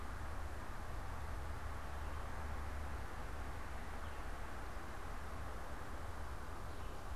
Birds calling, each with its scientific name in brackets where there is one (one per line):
Red-eyed Vireo (Vireo olivaceus)